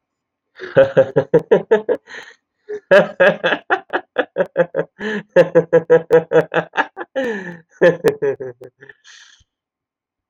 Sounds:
Laughter